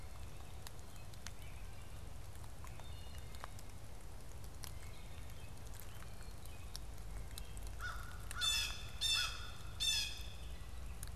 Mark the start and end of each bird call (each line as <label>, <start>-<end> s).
Wood Thrush (Hylocichla mustelina), 2.4-3.5 s
American Crow (Corvus brachyrhynchos), 7.6-9.7 s
Blue Jay (Cyanocitta cristata), 8.2-10.6 s